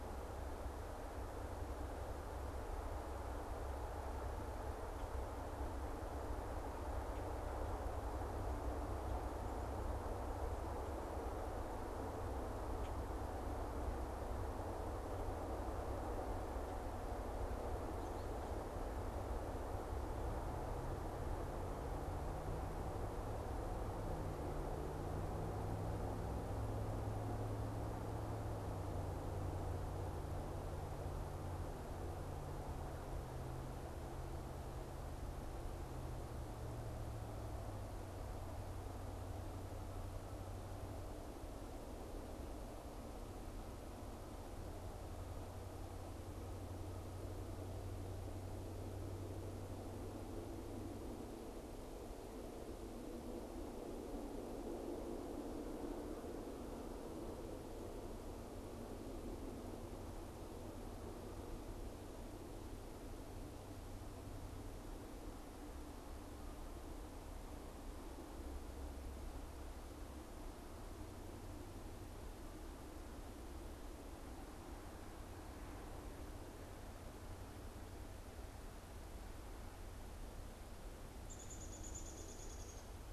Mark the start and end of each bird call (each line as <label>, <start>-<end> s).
Downy Woodpecker (Dryobates pubescens), 81.1-83.0 s